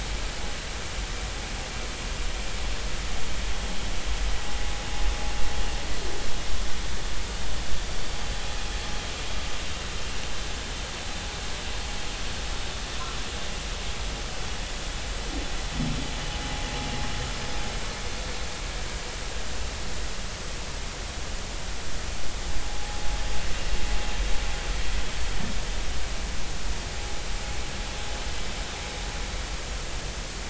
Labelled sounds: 22.7	23.0	vessel noise, 0.80 to 0.90 kHz

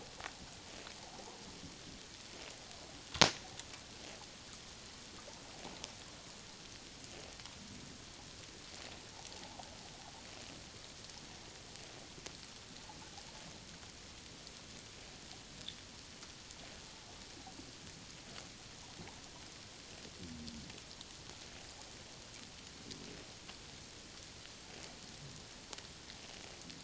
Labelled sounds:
9.3	9.7	water noise, 0.78 to 0.94 kHz

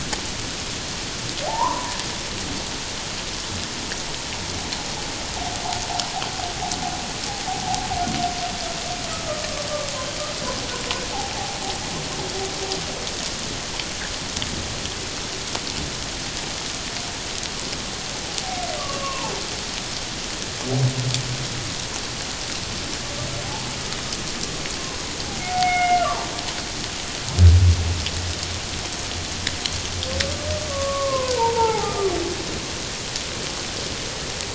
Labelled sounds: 1.4	2.0	humpback whale, 0.78 to 1.2 kHz
11.3	11.6	humpback whale, 0.78 to 0.91 kHz
18.8	19.3	humpback whale, 0.81 to 1.2 kHz
25.4	26.1	humpback whale, 0.78 to 2.9 kHz
30.7	32.1	humpback whale, 0.78 to 1.4 kHz

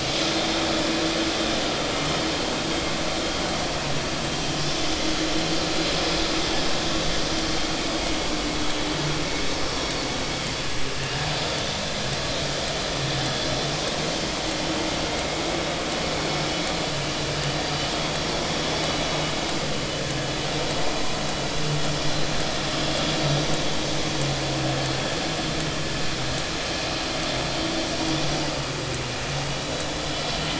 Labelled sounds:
0.2	0.5	vessel noise, 3.5 to 3.7 kHz
5.9	6.2	vessel noise, 5.0 to 5.2 kHz
9.6	9.9	vessel noise, 5.4 to 5.6 kHz

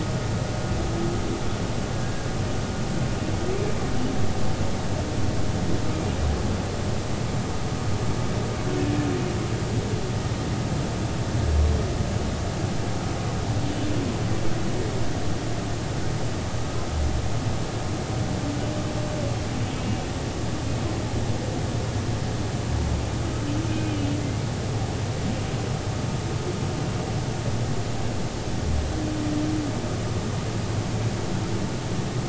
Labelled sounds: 23.7	24.5	humpback whale, 2.0 to 2.6 kHz

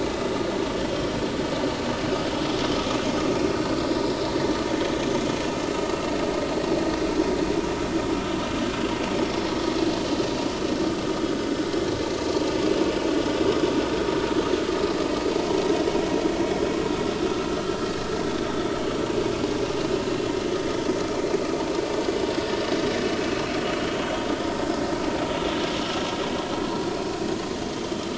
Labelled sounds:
0.1	0.4	vessel noise, 3.6 to 3.7 kHz

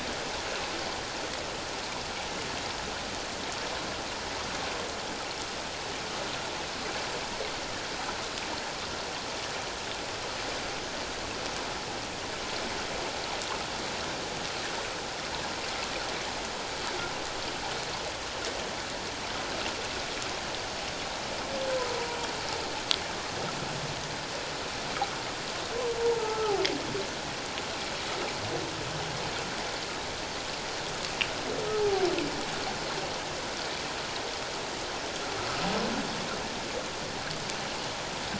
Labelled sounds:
26.1	26.5	humpback whale, 0.81 to 1.4 kHz

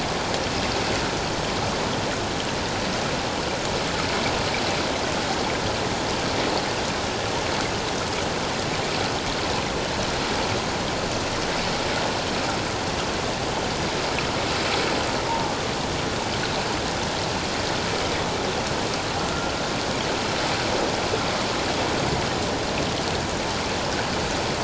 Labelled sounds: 15.3	15.5	humpback whale, 0.81 to 1.0 kHz

